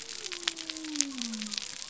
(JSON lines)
{"label": "biophony", "recorder": "SoundTrap 300"}